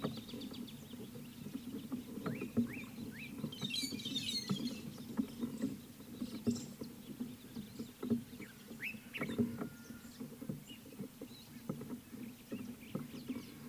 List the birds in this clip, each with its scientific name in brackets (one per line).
Slate-colored Boubou (Laniarius funebris)
White-headed Buffalo-Weaver (Dinemellia dinemelli)
Common Bulbul (Pycnonotus barbatus)